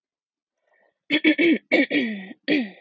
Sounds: Throat clearing